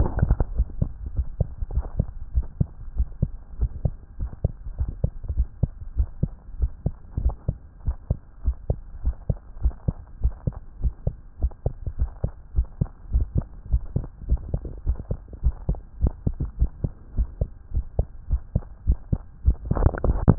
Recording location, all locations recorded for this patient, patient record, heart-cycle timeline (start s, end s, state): tricuspid valve (TV)
aortic valve (AV)+pulmonary valve (PV)+tricuspid valve (TV)+mitral valve (MV)
#Age: Child
#Sex: Female
#Height: 133.0 cm
#Weight: 24.9 kg
#Pregnancy status: False
#Murmur: Absent
#Murmur locations: nan
#Most audible location: nan
#Systolic murmur timing: nan
#Systolic murmur shape: nan
#Systolic murmur grading: nan
#Systolic murmur pitch: nan
#Systolic murmur quality: nan
#Diastolic murmur timing: nan
#Diastolic murmur shape: nan
#Diastolic murmur grading: nan
#Diastolic murmur pitch: nan
#Diastolic murmur quality: nan
#Outcome: Normal
#Campaign: 2015 screening campaign
0.00	2.07	unannotated
2.07	2.10	S2
2.10	2.34	diastole
2.34	2.48	S1
2.48	2.56	systole
2.56	2.70	S2
2.70	2.96	diastole
2.96	3.08	S1
3.08	3.18	systole
3.18	3.30	S2
3.30	3.60	diastole
3.60	3.72	S1
3.72	3.82	systole
3.82	3.96	S2
3.96	4.20	diastole
4.20	4.30	S1
4.30	4.40	systole
4.40	4.52	S2
4.52	4.78	diastole
4.78	4.90	S1
4.90	5.02	systole
5.02	5.12	S2
5.12	5.34	diastole
5.34	5.48	S1
5.48	5.60	systole
5.60	5.70	S2
5.70	5.96	diastole
5.96	6.10	S1
6.10	6.22	systole
6.22	6.34	S2
6.34	6.60	diastole
6.60	6.72	S1
6.72	6.82	systole
6.82	6.94	S2
6.94	7.18	diastole
7.18	7.34	S1
7.34	7.44	systole
7.44	7.56	S2
7.56	7.86	diastole
7.86	7.96	S1
7.96	8.06	systole
8.06	8.20	S2
8.20	8.44	diastole
8.44	8.56	S1
8.56	8.68	systole
8.68	8.78	S2
8.78	9.02	diastole
9.02	9.16	S1
9.16	9.28	systole
9.28	9.38	S2
9.38	9.60	diastole
9.60	9.74	S1
9.74	9.84	systole
9.84	9.96	S2
9.96	10.22	diastole
10.22	10.34	S1
10.34	10.46	systole
10.46	10.56	S2
10.56	10.82	diastole
10.82	10.94	S1
10.94	11.05	systole
11.05	11.15	S2
11.15	11.40	diastole
11.40	11.52	S1
11.52	11.64	systole
11.64	11.76	S2
11.76	11.99	diastole
11.99	12.12	S1
12.12	12.20	systole
12.20	12.32	S2
12.32	12.55	diastole
12.55	12.68	S1
12.68	12.79	systole
12.79	12.88	S2
12.88	13.10	diastole
13.10	13.24	S1
13.24	13.34	systole
13.34	13.46	S2
13.46	13.70	diastole
13.70	13.84	S1
13.84	13.94	systole
13.94	14.04	S2
14.04	14.28	diastole
14.28	14.42	S1
14.42	14.52	systole
14.52	14.64	S2
14.64	14.86	diastole
14.86	14.98	S1
14.98	15.08	systole
15.08	15.18	S2
15.18	15.42	diastole
15.42	15.56	S1
15.56	15.66	systole
15.66	15.80	S2
15.80	16.00	diastole
16.00	16.14	S1
16.14	16.22	systole
16.22	16.34	S2
16.34	16.58	diastole
16.58	16.70	S1
16.70	16.80	systole
16.80	16.94	S2
16.94	17.16	diastole
17.16	17.30	S1
17.30	17.40	systole
17.40	17.52	S2
17.52	17.73	diastole
17.73	17.86	S1
17.86	17.97	systole
17.97	18.08	S2
18.08	18.29	diastole
18.29	18.42	S1
18.42	18.52	systole
18.52	18.64	S2
18.64	18.72	diastole
18.72	20.38	unannotated